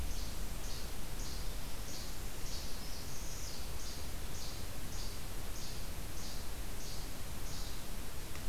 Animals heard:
Northern Parula (Setophaga americana), Least Flycatcher (Empidonax minimus)

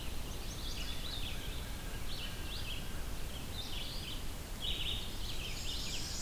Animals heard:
American Crow (Corvus brachyrhynchos), Chestnut-sided Warbler (Setophaga pensylvanica), Black-and-white Warbler (Mniotilta varia), Red-eyed Vireo (Vireo olivaceus), Ovenbird (Seiurus aurocapilla)

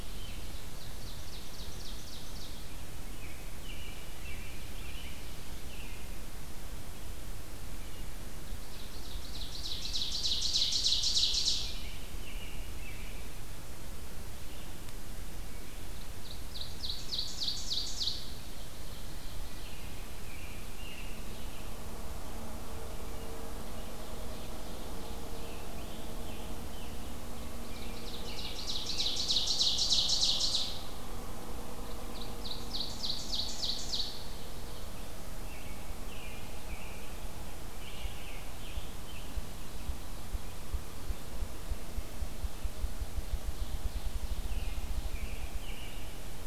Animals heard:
Ovenbird (Seiurus aurocapilla), Ruffed Grouse (Bonasa umbellus), American Robin (Turdus migratorius), Scarlet Tanager (Piranga olivacea)

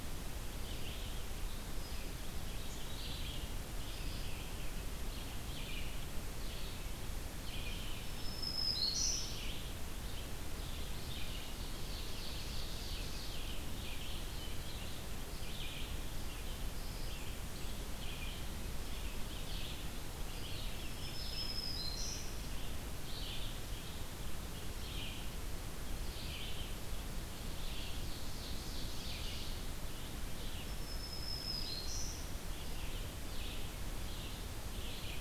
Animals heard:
Black-throated Green Warbler (Setophaga virens), Ovenbird (Seiurus aurocapilla), Red-eyed Vireo (Vireo olivaceus)

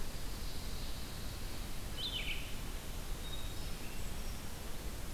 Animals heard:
Pine Warbler (Setophaga pinus), Red-eyed Vireo (Vireo olivaceus), Brown Creeper (Certhia americana)

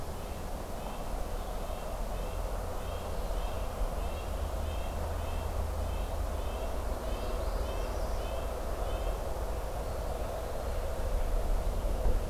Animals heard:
Eastern Wood-Pewee (Contopus virens), Northern Parula (Setophaga americana), Red-breasted Nuthatch (Sitta canadensis)

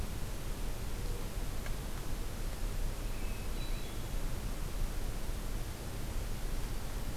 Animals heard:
Mourning Dove (Zenaida macroura), American Robin (Turdus migratorius), Hermit Thrush (Catharus guttatus)

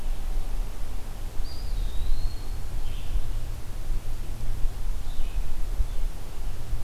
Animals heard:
Eastern Wood-Pewee (Contopus virens), Blue-headed Vireo (Vireo solitarius)

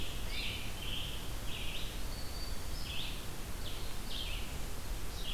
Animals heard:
Scarlet Tanager (Piranga olivacea), Red-eyed Vireo (Vireo olivaceus)

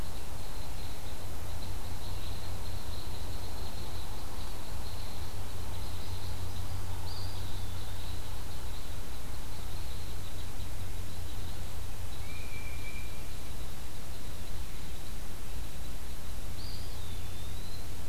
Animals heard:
Eastern Wood-Pewee (Contopus virens), Tufted Titmouse (Baeolophus bicolor), unknown mammal

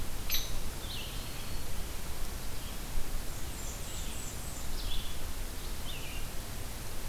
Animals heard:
Blackburnian Warbler (Setophaga fusca), Hairy Woodpecker (Dryobates villosus), Red-eyed Vireo (Vireo olivaceus)

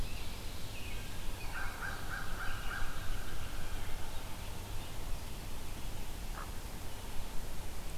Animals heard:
Blue Jay (Cyanocitta cristata), American Robin (Turdus migratorius), Hooded Merganser (Lophodytes cucullatus), American Crow (Corvus brachyrhynchos)

